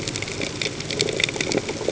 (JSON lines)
{"label": "ambient", "recorder": "HydroMoth"}